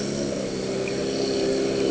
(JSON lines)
{"label": "anthrophony, boat engine", "recorder": "HydroMoth"}